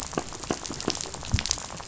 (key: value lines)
label: biophony, rattle
recorder: SoundTrap 500